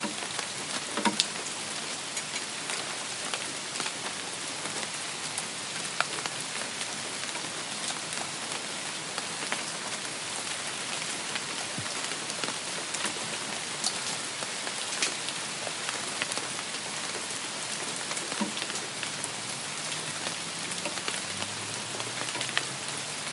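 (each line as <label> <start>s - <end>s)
Rain falling continuously. 0.0s - 23.3s
Rain is falling. 0.9s - 1.5s
Wood clanking. 0.9s - 1.5s
Metallic clanking sounds. 2.6s - 2.9s
Rain is falling. 2.6s - 2.9s
A light thumping sound. 12.1s - 12.5s
Rain is falling. 12.1s - 12.5s
A drop falls into a cup. 13.7s - 14.1s
Rain is falling. 13.7s - 14.1s
Rain is falling. 15.0s - 15.5s
Wood breaking. 15.0s - 15.5s
Rain is falling. 18.5s - 18.8s
Something drops into a large container. 18.5s - 18.8s
A drop falls on a surface. 21.0s - 21.4s
Rain is falling. 21.0s - 21.4s
An object drops on a metallic surface. 22.4s - 22.8s
Rain is falling. 22.4s - 22.8s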